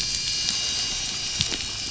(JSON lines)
{"label": "anthrophony, boat engine", "recorder": "SoundTrap 500"}